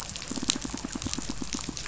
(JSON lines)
{"label": "biophony, pulse", "recorder": "SoundTrap 500"}